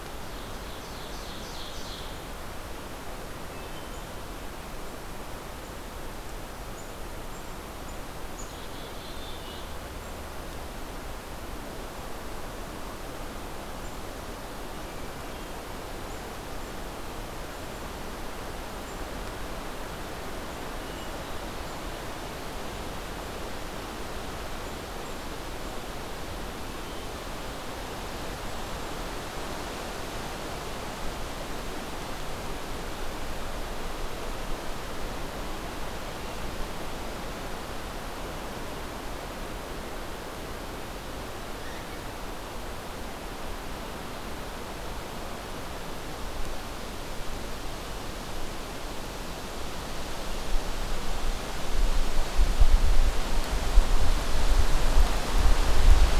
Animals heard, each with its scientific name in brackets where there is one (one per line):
Hermit Thrush (Catharus guttatus)
Black-capped Chickadee (Poecile atricapillus)
Ovenbird (Seiurus aurocapilla)